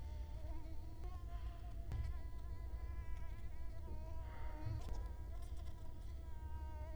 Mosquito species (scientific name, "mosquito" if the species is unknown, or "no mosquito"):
Culex quinquefasciatus